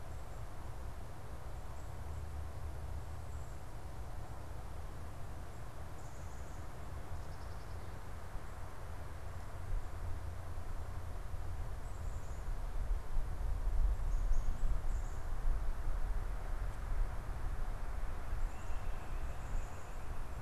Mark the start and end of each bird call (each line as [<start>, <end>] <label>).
[13.90, 15.40] Black-capped Chickadee (Poecile atricapillus)
[18.50, 20.40] unidentified bird